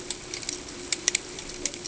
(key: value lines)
label: ambient
recorder: HydroMoth